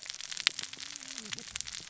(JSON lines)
{"label": "biophony, cascading saw", "recorder": "SoundTrap 600 or HydroMoth"}